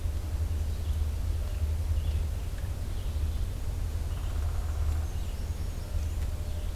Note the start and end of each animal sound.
0.0s-6.8s: Red-eyed Vireo (Vireo olivaceus)
3.4s-6.5s: Black-and-white Warbler (Mniotilta varia)
4.0s-5.1s: Downy Woodpecker (Dryobates pubescens)

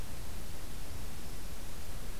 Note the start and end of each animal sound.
1.1s-1.6s: Black-throated Green Warbler (Setophaga virens)

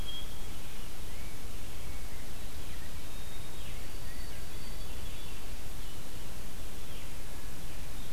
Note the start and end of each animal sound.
0.0s-0.5s: White-throated Sparrow (Zonotrichia albicollis)
0.4s-4.8s: Rose-breasted Grosbeak (Pheucticus ludovicianus)
3.0s-5.6s: White-throated Sparrow (Zonotrichia albicollis)

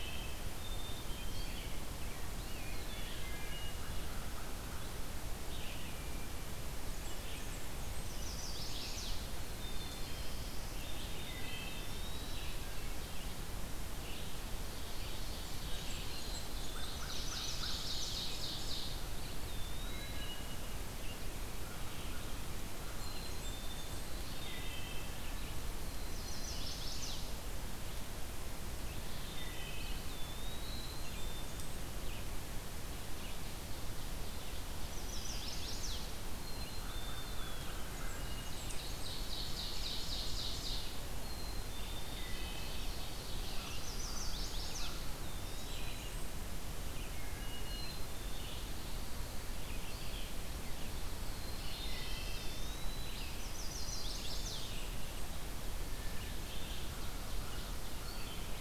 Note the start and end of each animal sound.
0.0s-58.6s: Red-eyed Vireo (Vireo olivaceus)
0.5s-1.5s: Black-capped Chickadee (Poecile atricapillus)
2.2s-3.4s: Eastern Wood-Pewee (Contopus virens)
2.8s-3.7s: Wood Thrush (Hylocichla mustelina)
6.7s-8.2s: Blackburnian Warbler (Setophaga fusca)
7.9s-9.4s: Chestnut-sided Warbler (Setophaga pensylvanica)
9.1s-11.0s: Black-throated Blue Warbler (Setophaga caerulescens)
9.5s-10.6s: Black-capped Chickadee (Poecile atricapillus)
10.7s-12.4s: Wood Thrush (Hylocichla mustelina)
11.5s-12.5s: Eastern Wood-Pewee (Contopus virens)
14.2s-19.0s: Ovenbird (Seiurus aurocapilla)
15.2s-16.7s: Blackburnian Warbler (Setophaga fusca)
16.1s-17.1s: Black-capped Chickadee (Poecile atricapillus)
16.6s-17.9s: American Crow (Corvus brachyrhynchos)
16.9s-18.3s: Chestnut-sided Warbler (Setophaga pensylvanica)
19.2s-20.3s: Eastern Wood-Pewee (Contopus virens)
19.8s-20.6s: Wood Thrush (Hylocichla mustelina)
22.8s-24.3s: Blackburnian Warbler (Setophaga fusca)
22.8s-24.0s: Black-capped Chickadee (Poecile atricapillus)
24.1s-25.1s: Wood Thrush (Hylocichla mustelina)
25.8s-26.9s: Black-capped Chickadee (Poecile atricapillus)
26.0s-27.5s: Chestnut-sided Warbler (Setophaga pensylvanica)
29.0s-30.4s: Wood Thrush (Hylocichla mustelina)
29.6s-31.4s: Eastern Wood-Pewee (Contopus virens)
30.5s-31.9s: Blackburnian Warbler (Setophaga fusca)
30.5s-31.7s: Black-capped Chickadee (Poecile atricapillus)
34.8s-36.3s: Chestnut-sided Warbler (Setophaga pensylvanica)
36.3s-37.5s: Black-capped Chickadee (Poecile atricapillus)
36.7s-38.4s: American Crow (Corvus brachyrhynchos)
36.8s-37.9s: Eastern Wood-Pewee (Contopus virens)
37.7s-38.5s: Wood Thrush (Hylocichla mustelina)
37.8s-39.1s: Blackburnian Warbler (Setophaga fusca)
38.6s-40.9s: Ovenbird (Seiurus aurocapilla)
41.1s-42.3s: Black-capped Chickadee (Poecile atricapillus)
41.7s-43.9s: Ovenbird (Seiurus aurocapilla)
42.1s-42.9s: Wood Thrush (Hylocichla mustelina)
43.6s-45.1s: Chestnut-sided Warbler (Setophaga pensylvanica)
45.1s-46.1s: Eastern Wood-Pewee (Contopus virens)
45.1s-46.4s: Blackburnian Warbler (Setophaga fusca)
47.1s-48.0s: Wood Thrush (Hylocichla mustelina)
47.5s-48.6s: Black-capped Chickadee (Poecile atricapillus)
51.0s-52.8s: Black-throated Blue Warbler (Setophaga caerulescens)
51.2s-52.6s: Wood Thrush (Hylocichla mustelina)
51.5s-53.5s: Eastern Wood-Pewee (Contopus virens)
53.3s-54.8s: Chestnut-sided Warbler (Setophaga pensylvanica)
53.7s-54.7s: Black-capped Chickadee (Poecile atricapillus)
53.8s-55.4s: Blackburnian Warbler (Setophaga fusca)
55.5s-56.6s: Wood Thrush (Hylocichla mustelina)
56.9s-58.4s: American Crow (Corvus brachyrhynchos)

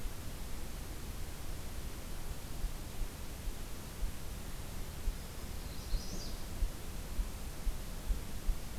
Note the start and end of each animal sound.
5.1s-6.0s: Black-throated Green Warbler (Setophaga virens)
5.7s-6.4s: Magnolia Warbler (Setophaga magnolia)

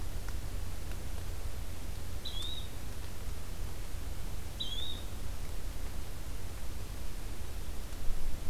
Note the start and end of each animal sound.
2.2s-2.7s: Yellow-bellied Flycatcher (Empidonax flaviventris)
4.5s-5.0s: Yellow-bellied Flycatcher (Empidonax flaviventris)

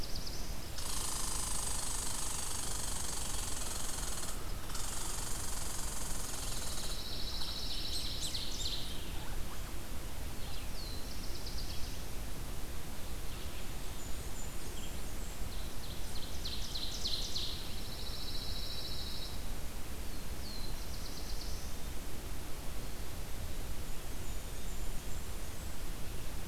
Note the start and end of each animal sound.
0.0s-0.5s: Black-throated Blue Warbler (Setophaga caerulescens)
0.0s-15.0s: Red-eyed Vireo (Vireo olivaceus)
0.7s-9.1s: Red Squirrel (Tamiasciurus hudsonicus)
6.3s-8.2s: Pine Warbler (Setophaga pinus)
10.0s-12.1s: Black-throated Blue Warbler (Setophaga caerulescens)
13.4s-15.4s: Blackburnian Warbler (Setophaga fusca)
15.4s-17.9s: Ovenbird (Seiurus aurocapilla)
17.6s-19.4s: Pine Warbler (Setophaga pinus)
20.0s-21.8s: Black-throated Blue Warbler (Setophaga caerulescens)
23.6s-25.8s: Blackburnian Warbler (Setophaga fusca)

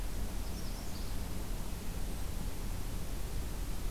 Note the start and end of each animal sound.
0.3s-1.1s: Magnolia Warbler (Setophaga magnolia)

